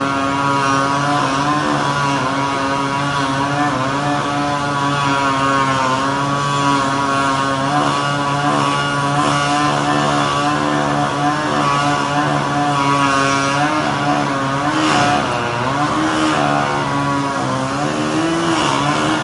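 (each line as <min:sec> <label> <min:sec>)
0:00.0 A chainsaw buzzing continuously. 0:14.5
0:14.6 A chainsaw hits something hard, causing the volume to increase. 0:15.4
0:15.5 A chainsaw buzzes constantly while cutting wood. 0:19.2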